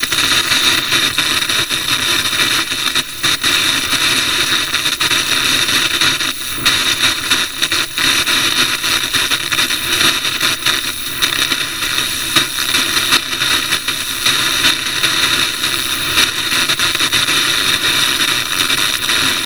Is something being shredded?
no